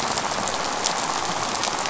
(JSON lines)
{"label": "biophony, rattle", "recorder": "SoundTrap 500"}